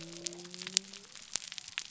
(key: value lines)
label: biophony
recorder: SoundTrap 300